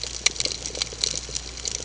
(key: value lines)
label: ambient
recorder: HydroMoth